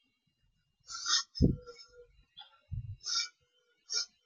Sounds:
Sniff